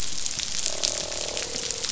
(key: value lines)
label: biophony, croak
recorder: SoundTrap 500